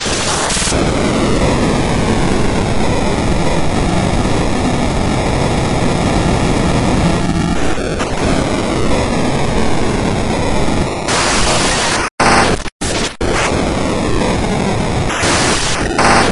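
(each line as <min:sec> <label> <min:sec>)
0:00.0 Loud rhythmic and noisy clicking. 0:00.7
0:00.7 Loud, noisy, raw digital sound. 0:11.1
0:11.1 Raw, sharp digital noise. 0:12.2
0:12.2 Loud rhythmic and noisy clicking. 0:13.2
0:13.2 Loud, noisy, and raw digital sound. 0:16.0
0:16.0 Loud rhythmic and noisy clicking. 0:16.3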